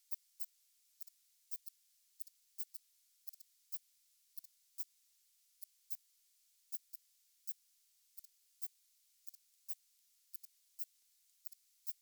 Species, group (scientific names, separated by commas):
Phaneroptera falcata, Orthoptera